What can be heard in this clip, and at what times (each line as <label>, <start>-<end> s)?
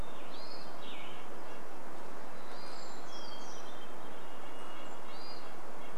Red-breasted Nuthatch song, 0-2 s
Western Tanager song, 0-2 s
Hermit Thrush call, 0-6 s
Brown Creeper call, 2-4 s
Hermit Thrush song, 2-4 s
warbler song, 2-4 s
Red-breasted Nuthatch song, 4-6 s